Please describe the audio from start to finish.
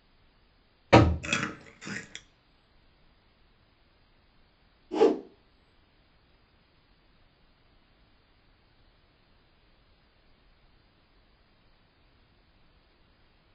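At 0.89 seconds, knocking can be heard. Then at 1.22 seconds, there is chewing. Next, at 4.9 seconds, whooshing is audible. A quiet background noise continues.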